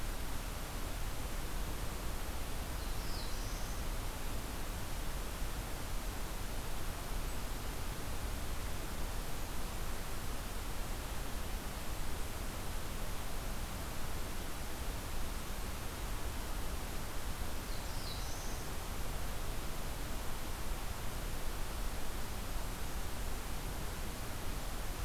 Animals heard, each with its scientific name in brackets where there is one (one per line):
Black-throated Blue Warbler (Setophaga caerulescens)